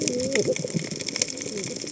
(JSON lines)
{"label": "biophony, cascading saw", "recorder": "HydroMoth"}